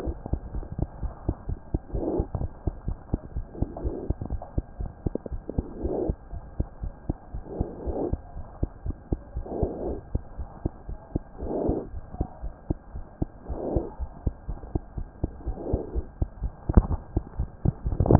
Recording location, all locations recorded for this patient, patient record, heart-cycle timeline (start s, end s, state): mitral valve (MV)
aortic valve (AV)+mitral valve (MV)
#Age: Infant
#Sex: Female
#Height: 68.0 cm
#Weight: 7.6 kg
#Pregnancy status: False
#Murmur: Absent
#Murmur locations: nan
#Most audible location: nan
#Systolic murmur timing: nan
#Systolic murmur shape: nan
#Systolic murmur grading: nan
#Systolic murmur pitch: nan
#Systolic murmur quality: nan
#Diastolic murmur timing: nan
#Diastolic murmur shape: nan
#Diastolic murmur grading: nan
#Diastolic murmur pitch: nan
#Diastolic murmur quality: nan
#Outcome: Abnormal
#Campaign: 2015 screening campaign
0.00	0.04	unannotated
0.04	0.15	S1
0.15	0.30	systole
0.30	0.40	S2
0.40	0.54	diastole
0.54	0.66	S1
0.66	0.76	systole
0.76	0.90	S2
0.90	1.02	diastole
1.02	1.14	S1
1.14	1.26	systole
1.26	1.36	S2
1.36	1.48	diastole
1.48	1.58	S1
1.58	1.70	systole
1.70	1.82	S2
1.82	1.94	diastole
1.94	2.06	S1
2.06	2.14	systole
2.14	2.28	S2
2.28	2.40	diastole
2.40	2.52	S1
2.52	2.62	systole
2.62	2.74	S2
2.74	2.86	diastole
2.86	2.98	S1
2.98	3.10	systole
3.10	3.20	S2
3.20	3.34	diastole
3.34	3.46	S1
3.46	3.58	systole
3.58	3.70	S2
3.70	3.84	diastole
3.84	3.94	S1
3.94	4.06	systole
4.06	4.18	S2
4.18	4.29	diastole
4.29	4.42	S1
4.42	4.54	systole
4.54	4.64	S2
4.64	4.78	diastole
4.78	4.90	S1
4.90	5.02	systole
5.02	5.14	S2
5.14	5.30	diastole
5.30	5.42	S1
5.42	5.54	systole
5.54	5.66	S2
5.66	5.82	diastole
5.82	5.96	S1
5.96	6.06	systole
6.06	6.18	S2
6.18	6.32	diastole
6.32	6.42	S1
6.42	6.56	systole
6.56	6.68	S2
6.68	6.82	diastole
6.82	6.94	S1
6.94	7.08	systole
7.08	7.16	S2
7.16	7.34	diastole
7.34	7.44	S1
7.44	7.58	systole
7.58	7.68	S2
7.68	7.84	diastole
7.84	7.96	S1
7.96	8.10	systole
8.10	8.20	S2
8.20	8.36	diastole
8.36	8.44	S1
8.44	8.58	systole
8.58	8.70	S2
8.70	8.84	diastole
8.84	8.96	S1
8.96	9.08	systole
9.08	9.20	S2
9.20	9.34	diastole
9.34	9.46	S1
9.46	9.60	systole
9.60	9.74	S2
9.74	9.86	diastole
9.86	10.00	S1
10.00	10.10	systole
10.10	10.22	S2
10.22	10.38	diastole
10.38	10.48	S1
10.48	10.62	systole
10.62	10.72	S2
10.72	10.88	diastole
10.88	10.98	S1
10.98	11.14	systole
11.14	11.24	S2
11.24	11.40	diastole
11.40	11.52	S1
11.52	11.64	systole
11.64	11.78	S2
11.78	11.92	diastole
11.92	12.02	S1
12.02	12.14	systole
12.14	12.26	S2
12.26	12.44	diastole
12.44	12.52	S1
12.52	12.66	systole
12.66	12.78	S2
12.78	12.94	diastole
12.94	13.04	S1
13.04	13.18	systole
13.18	13.32	S2
13.32	13.48	diastole
13.48	13.60	S1
13.60	13.70	systole
13.70	13.84	S2
13.84	14.00	diastole
14.00	14.10	S1
14.10	14.22	systole
14.22	14.34	S2
14.34	14.48	diastole
14.48	14.58	S1
14.58	14.72	systole
14.72	14.84	S2
14.84	14.98	diastole
14.98	15.08	S1
15.08	15.20	systole
15.20	15.32	S2
15.32	15.46	diastole
15.46	15.58	S1
15.58	15.68	systole
15.68	15.82	S2
15.82	15.94	diastole
15.94	16.06	S1
16.06	16.18	systole
16.18	16.28	S2
16.28	18.19	unannotated